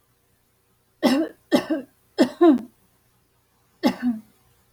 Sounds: Cough